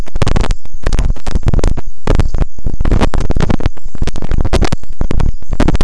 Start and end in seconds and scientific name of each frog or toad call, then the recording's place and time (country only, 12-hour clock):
none
Brazil, 6:30pm